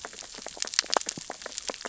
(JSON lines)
{"label": "biophony, sea urchins (Echinidae)", "recorder": "SoundTrap 600 or HydroMoth"}